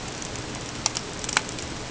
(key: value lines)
label: ambient
recorder: HydroMoth